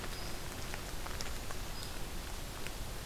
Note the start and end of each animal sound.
[0.00, 1.96] unidentified call

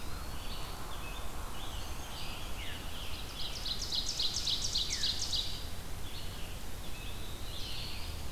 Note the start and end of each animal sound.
[0.00, 0.87] Eastern Wood-Pewee (Contopus virens)
[0.00, 8.31] Red-eyed Vireo (Vireo olivaceus)
[0.71, 3.82] Scarlet Tanager (Piranga olivacea)
[2.94, 5.72] Ovenbird (Seiurus aurocapilla)
[4.74, 8.31] Veery (Catharus fuscescens)
[6.61, 8.25] Black-throated Blue Warbler (Setophaga caerulescens)

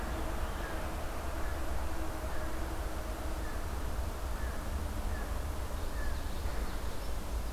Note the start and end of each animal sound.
[0.00, 7.52] American Crow (Corvus brachyrhynchos)
[5.68, 7.24] Common Yellowthroat (Geothlypis trichas)

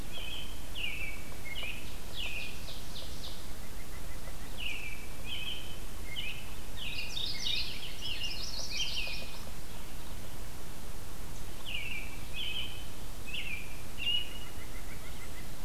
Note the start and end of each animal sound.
[0.00, 2.59] American Robin (Turdus migratorius)
[2.17, 3.54] Ovenbird (Seiurus aurocapilla)
[3.33, 4.63] White-breasted Nuthatch (Sitta carolinensis)
[4.40, 9.32] American Robin (Turdus migratorius)
[6.66, 7.82] Mourning Warbler (Geothlypis philadelphia)
[7.83, 9.51] Yellow-rumped Warbler (Setophaga coronata)
[11.58, 14.60] American Robin (Turdus migratorius)
[14.39, 15.64] White-breasted Nuthatch (Sitta carolinensis)

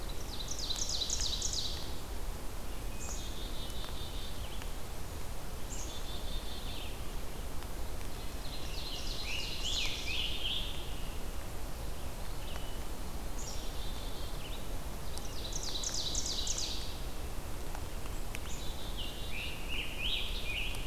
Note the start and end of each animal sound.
[0.00, 2.15] Ovenbird (Seiurus aurocapilla)
[0.00, 20.86] Red-eyed Vireo (Vireo olivaceus)
[2.67, 3.59] Hermit Thrush (Catharus guttatus)
[2.82, 4.45] Black-capped Chickadee (Poecile atricapillus)
[5.56, 7.02] Black-capped Chickadee (Poecile atricapillus)
[7.97, 10.17] Ovenbird (Seiurus aurocapilla)
[8.89, 11.43] Scarlet Tanager (Piranga olivacea)
[12.40, 13.28] Hermit Thrush (Catharus guttatus)
[13.16, 15.00] Black-capped Chickadee (Poecile atricapillus)
[15.04, 17.29] Ovenbird (Seiurus aurocapilla)
[18.00, 19.66] Black-capped Chickadee (Poecile atricapillus)
[18.67, 20.86] Scarlet Tanager (Piranga olivacea)

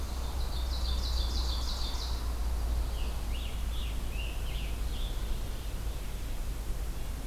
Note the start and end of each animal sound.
[0.00, 2.41] Ovenbird (Seiurus aurocapilla)
[2.63, 5.68] Scarlet Tanager (Piranga olivacea)

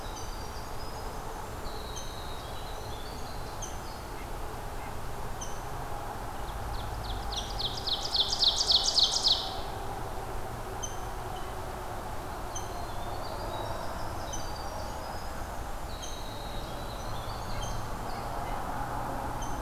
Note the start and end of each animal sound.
[0.00, 4.08] Winter Wren (Troglodytes hiemalis)
[0.00, 19.61] Rose-breasted Grosbeak (Pheucticus ludovicianus)
[6.50, 9.56] Ovenbird (Seiurus aurocapilla)
[12.28, 18.53] Winter Wren (Troglodytes hiemalis)

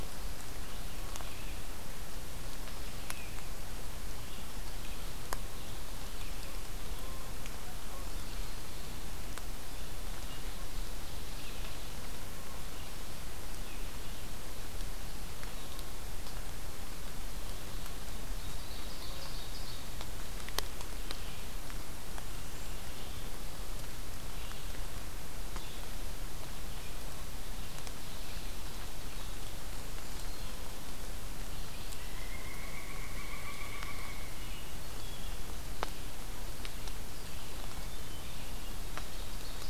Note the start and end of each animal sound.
[0.00, 5.03] Red-eyed Vireo (Vireo olivaceus)
[5.66, 39.69] Red-eyed Vireo (Vireo olivaceus)
[10.40, 12.30] Ovenbird (Seiurus aurocapilla)
[18.03, 20.15] Ovenbird (Seiurus aurocapilla)
[31.84, 35.63] Pileated Woodpecker (Dryocopus pileatus)
[37.52, 38.87] Hermit Thrush (Catharus guttatus)
[39.04, 39.69] Ovenbird (Seiurus aurocapilla)

